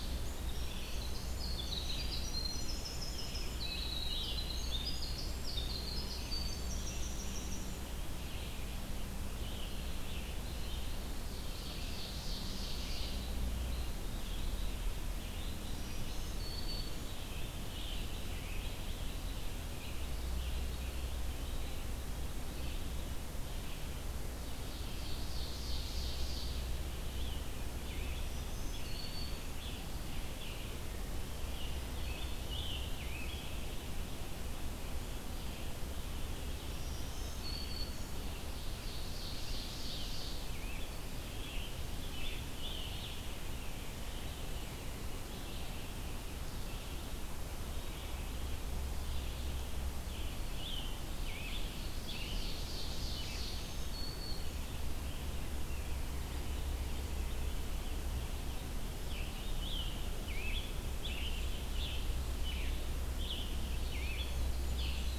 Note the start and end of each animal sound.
[0.00, 34.85] Red-eyed Vireo (Vireo olivaceus)
[0.28, 8.22] Winter Wren (Troglodytes hiemalis)
[2.95, 5.04] Scarlet Tanager (Piranga olivacea)
[8.95, 11.13] Scarlet Tanager (Piranga olivacea)
[11.24, 13.32] Ovenbird (Seiurus aurocapilla)
[15.53, 17.27] Black-throated Green Warbler (Setophaga virens)
[16.66, 19.16] Scarlet Tanager (Piranga olivacea)
[24.45, 26.77] Ovenbird (Seiurus aurocapilla)
[27.10, 30.83] Scarlet Tanager (Piranga olivacea)
[27.89, 29.54] Black-throated Green Warbler (Setophaga virens)
[31.16, 33.63] Scarlet Tanager (Piranga olivacea)
[35.12, 65.19] Red-eyed Vireo (Vireo olivaceus)
[36.35, 38.22] Black-throated Green Warbler (Setophaga virens)
[38.63, 40.48] Ovenbird (Seiurus aurocapilla)
[40.35, 43.18] Scarlet Tanager (Piranga olivacea)
[50.16, 53.17] Scarlet Tanager (Piranga olivacea)
[51.87, 53.83] Ovenbird (Seiurus aurocapilla)
[53.06, 54.70] Black-throated Green Warbler (Setophaga virens)
[58.83, 65.19] Scarlet Tanager (Piranga olivacea)
[64.21, 65.19] Winter Wren (Troglodytes hiemalis)

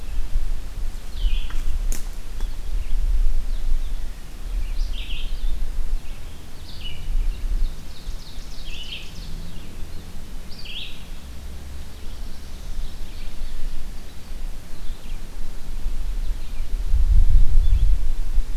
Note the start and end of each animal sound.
[0.00, 11.15] Red-eyed Vireo (Vireo olivaceus)
[7.30, 9.75] Ovenbird (Seiurus aurocapilla)
[11.45, 13.40] Black-throated Blue Warbler (Setophaga caerulescens)
[13.77, 18.57] Red-eyed Vireo (Vireo olivaceus)

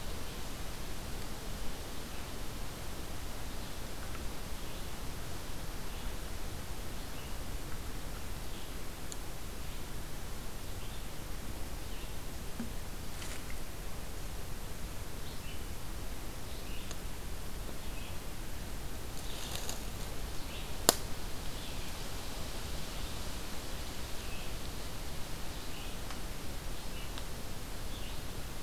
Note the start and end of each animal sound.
[3.28, 28.62] Red-eyed Vireo (Vireo olivaceus)

